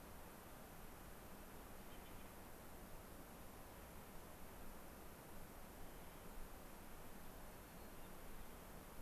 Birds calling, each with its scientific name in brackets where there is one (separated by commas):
Hermit Thrush (Catharus guttatus)